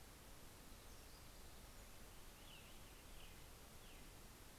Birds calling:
Black-throated Gray Warbler (Setophaga nigrescens)
American Robin (Turdus migratorius)

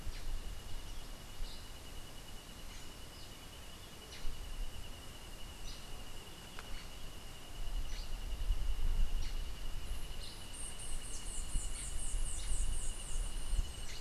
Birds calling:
Black-headed Saltator (Saltator atriceps)
White-eared Ground-Sparrow (Melozone leucotis)

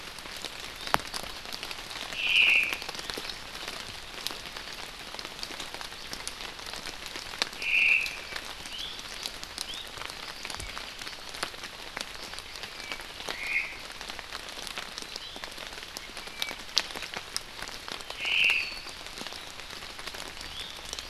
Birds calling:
Apapane (Himatione sanguinea)
Iiwi (Drepanis coccinea)
Omao (Myadestes obscurus)

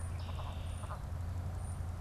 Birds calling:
Red-winged Blackbird (Agelaius phoeniceus)
European Starling (Sturnus vulgaris)

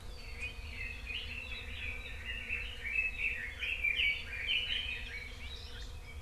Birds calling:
Hawaii Creeper (Loxops mana)
Red-billed Leiothrix (Leiothrix lutea)

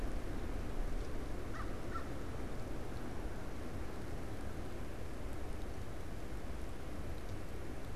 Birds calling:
American Crow (Corvus brachyrhynchos)

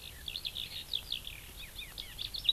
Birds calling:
Eurasian Skylark (Alauda arvensis)

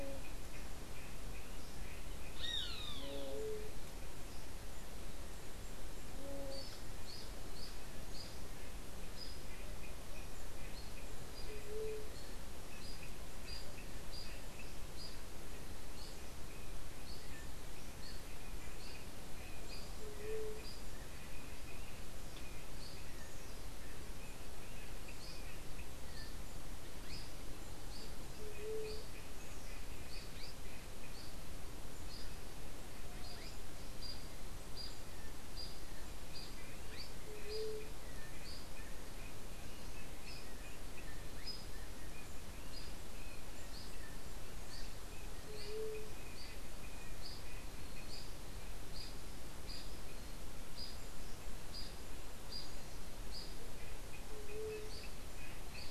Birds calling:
White-tipped Dove (Leptotila verreauxi)
unidentified bird
Roadside Hawk (Rupornis magnirostris)

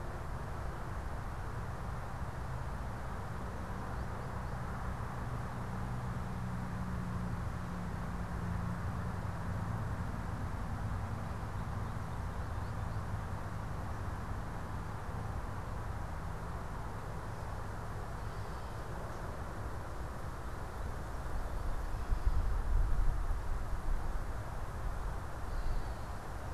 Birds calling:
Gray Catbird (Dumetella carolinensis)
American Goldfinch (Spinus tristis)

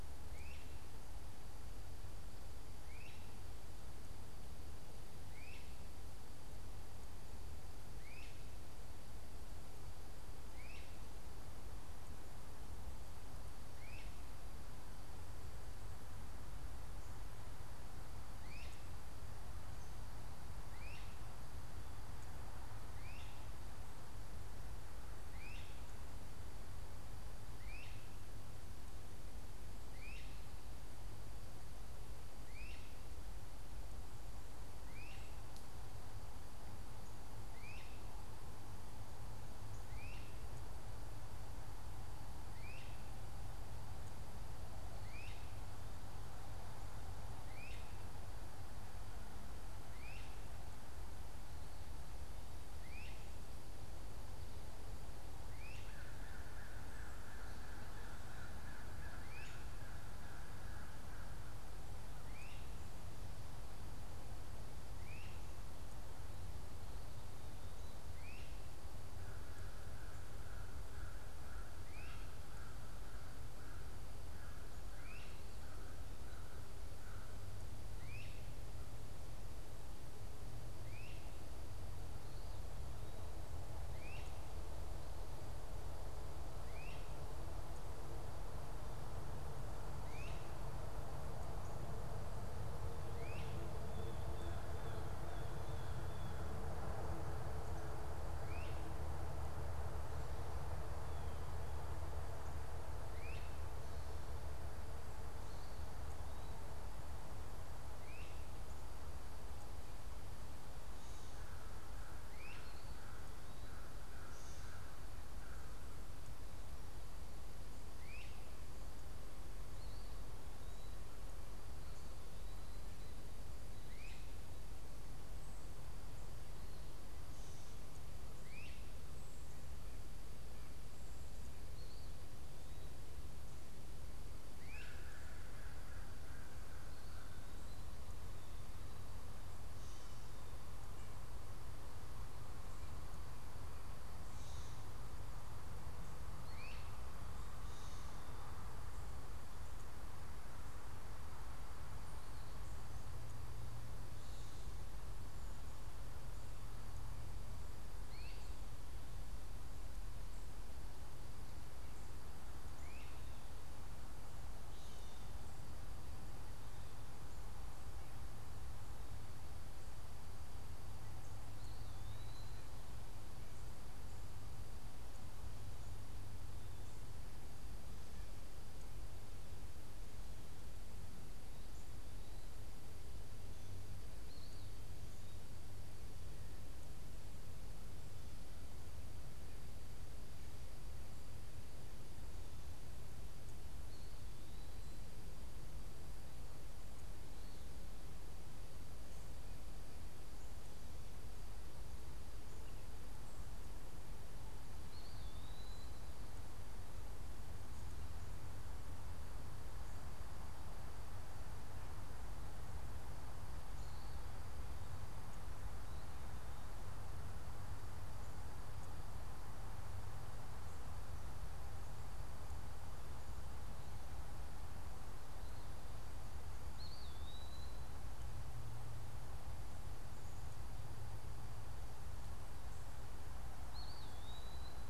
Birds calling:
Eastern Wood-Pewee (Contopus virens)
Blue Jay (Cyanocitta cristata)
Great Crested Flycatcher (Myiarchus crinitus)
American Crow (Corvus brachyrhynchos)

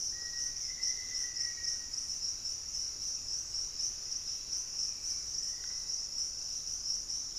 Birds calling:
Black-faced Antthrush (Formicarius analis)
Hauxwell's Thrush (Turdus hauxwelli)
Thrush-like Wren (Campylorhynchus turdinus)

